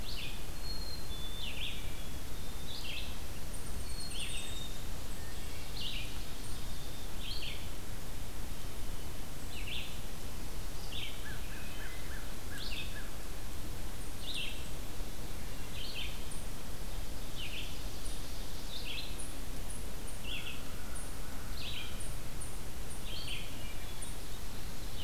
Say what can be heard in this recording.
Red-eyed Vireo, Black-capped Chickadee, Eastern Chipmunk, Hermit Thrush, American Crow, Ovenbird